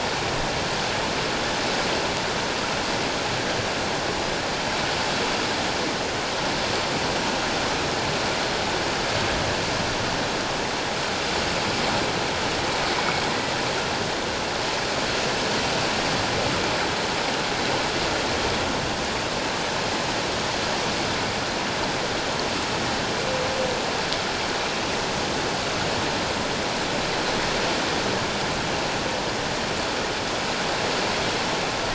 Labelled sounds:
13.0	13.2	humpback whale, 2.2 to 2.3 kHz

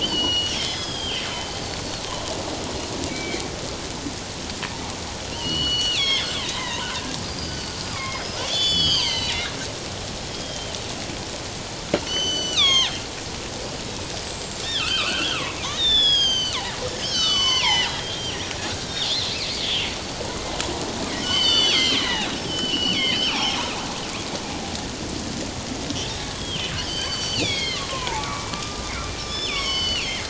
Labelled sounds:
0.0	2.0	killer whale, northern resident, G clan, 2.0 to 5.9 kHz
3.1	3.4	killer whale, northern resident, G clan, 1.9 to 2.4 kHz
5.3	9.4	killer whale, northern resident, G clan, 0.91 to 7.0 kHz
10.3	10.8	killer whale, northern resident, G clan, 3.0 to 3.3 kHz
12.0	13.0	killer whale, northern resident, G clan, 0.91 to 7.6 kHz
14.2	19.0	killer whale, northern resident, G clan, 0.78 to 7.9 kHz
21.2	23.6	killer whale, northern resident, G clan, 0.78 to 6.2 kHz
26.4	30.1	killer whale, northern resident, G clan, 0.81 to 6.3 kHz

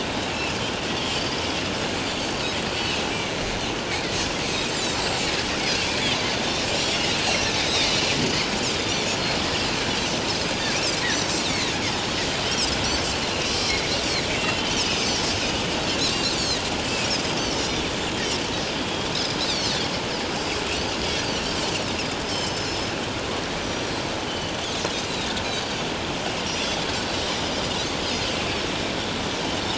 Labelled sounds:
2.7	2.9	Pacific white-sided dolphin, 4.4 to 4.8 kHz
4.7	5.0	Pacific white-sided dolphin, 4.3 to 7.5 kHz
7.3	7.9	Pacific white-sided dolphin, 2.5 to 4.2 kHz
8.8	9.1	Pacific white-sided dolphin, 3.3 to 3.7 kHz
10.0	10.7	Pacific white-sided dolphin, 4.8 to 6.4 kHz
14.3	15.2	Pacific white-sided dolphin, 2.4 to 5.3 kHz
16.1	16.6	Pacific white-sided dolphin, 3.6 to 6.3 kHz
17.5	17.8	Pacific white-sided dolphin, 4.9 to 5.4 kHz
18.8	19.1	Pacific white-sided dolphin, 3.2 to 3.4 kHz
19.4	19.8	Pacific white-sided dolphin, 3.7 to 6.2 kHz
21.3	21.6	Pacific white-sided dolphin, 5.1 to 6.1 kHz
22.2	22.9	Pacific white-sided dolphin, 2.9 to 6.3 kHz
23.6	24.6	Pacific white-sided dolphin, 2.8 to 6.1 kHz
25.1	25.8	Pacific white-sided dolphin, 3.5 to 4.9 kHz

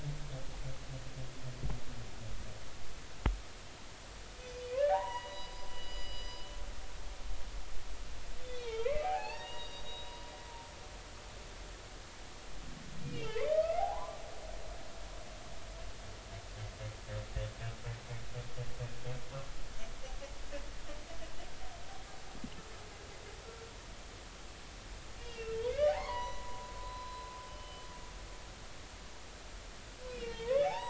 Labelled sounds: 4.7	6.4	humpback whale, 0.80 to 5.0 kHz
8.4	10.2	humpback whale, 0.80 to 4.8 kHz
13.0	14.2	humpback whale, 0.80 to 3.3 kHz
25.2	25.6	humpback whale, 2.6 to 2.9 kHz
25.9	27.8	humpback whale, 0.80 to 6.0 kHz
30.1	30.8	humpback whale, 0.80 to 3.7 kHz

